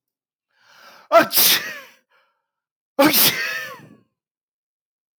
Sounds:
Sneeze